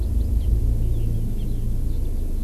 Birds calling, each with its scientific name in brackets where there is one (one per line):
Erckel's Francolin (Pternistis erckelii)
Eurasian Skylark (Alauda arvensis)